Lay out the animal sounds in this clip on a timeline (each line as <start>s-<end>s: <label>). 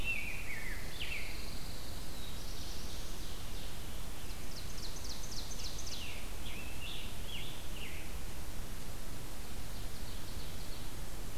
0.0s-1.7s: Rose-breasted Grosbeak (Pheucticus ludovicianus)
0.4s-2.2s: Pine Warbler (Setophaga pinus)
1.8s-3.2s: Black-throated Blue Warbler (Setophaga caerulescens)
2.3s-6.3s: Ovenbird (Seiurus aurocapilla)
5.2s-8.2s: Scarlet Tanager (Piranga olivacea)
9.3s-10.8s: Ovenbird (Seiurus aurocapilla)